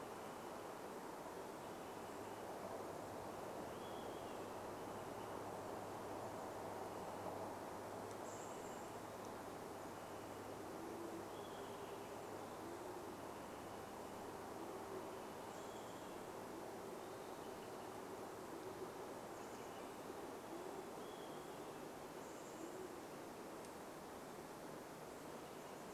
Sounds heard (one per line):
Olive-sided Flycatcher call
Band-tailed Pigeon call
Olive-sided Flycatcher song
Chestnut-backed Chickadee call